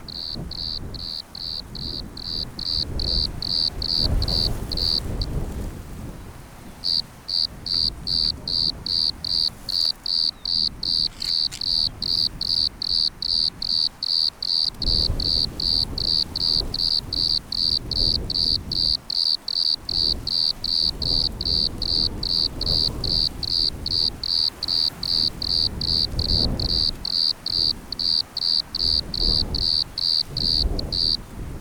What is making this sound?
Eumodicogryllus bordigalensis, an orthopteran